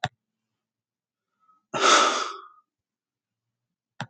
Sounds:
Sigh